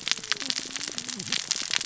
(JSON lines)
{"label": "biophony, cascading saw", "recorder": "SoundTrap 600 or HydroMoth"}